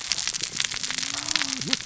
{"label": "biophony, cascading saw", "recorder": "SoundTrap 600 or HydroMoth"}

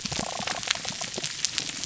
{"label": "biophony", "recorder": "SoundTrap 300"}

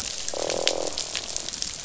{"label": "biophony, croak", "recorder": "SoundTrap 500"}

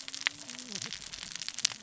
{"label": "biophony, cascading saw", "recorder": "SoundTrap 600 or HydroMoth"}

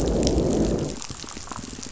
{"label": "biophony, growl", "recorder": "SoundTrap 500"}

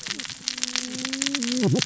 {"label": "biophony, cascading saw", "recorder": "SoundTrap 600 or HydroMoth"}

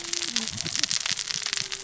{"label": "biophony, cascading saw", "recorder": "SoundTrap 600 or HydroMoth"}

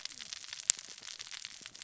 {"label": "biophony, cascading saw", "recorder": "SoundTrap 600 or HydroMoth"}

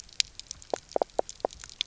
{"label": "biophony, knock croak", "recorder": "SoundTrap 300"}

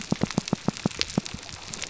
{"label": "biophony, pulse", "recorder": "SoundTrap 300"}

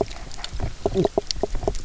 {"label": "biophony, knock croak", "recorder": "SoundTrap 300"}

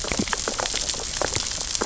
{"label": "biophony, sea urchins (Echinidae)", "recorder": "SoundTrap 600 or HydroMoth"}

